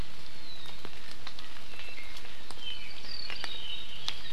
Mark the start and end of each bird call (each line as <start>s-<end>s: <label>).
1.7s-2.2s: Apapane (Himatione sanguinea)
2.6s-4.3s: Apapane (Himatione sanguinea)